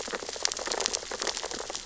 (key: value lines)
label: biophony, sea urchins (Echinidae)
recorder: SoundTrap 600 or HydroMoth